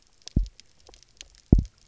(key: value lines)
label: biophony, double pulse
recorder: SoundTrap 300